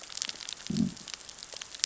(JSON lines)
{"label": "biophony, growl", "recorder": "SoundTrap 600 or HydroMoth"}